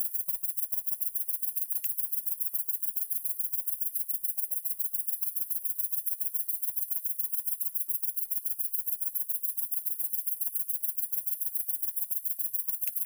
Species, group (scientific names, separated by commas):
Tettigonia viridissima, Orthoptera